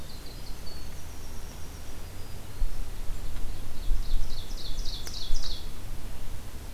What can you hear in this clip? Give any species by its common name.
Winter Wren, Black-throated Green Warbler, Ovenbird